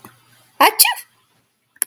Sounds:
Sneeze